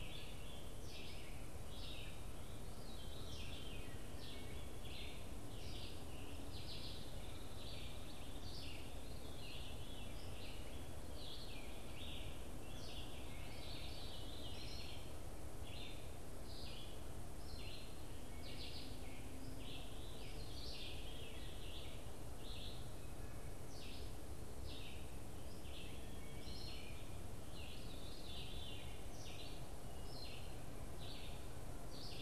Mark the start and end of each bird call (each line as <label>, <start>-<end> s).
Red-eyed Vireo (Vireo olivaceus), 0.0-32.2 s
Veery (Catharus fuscescens), 2.6-4.0 s
Hairy Woodpecker (Dryobates villosus), 6.3-8.7 s
Veery (Catharus fuscescens), 8.9-10.9 s
Veery (Catharus fuscescens), 13.3-14.9 s
Veery (Catharus fuscescens), 20.0-21.6 s
Veery (Catharus fuscescens), 27.4-28.9 s